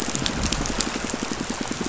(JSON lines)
{"label": "biophony, pulse", "recorder": "SoundTrap 500"}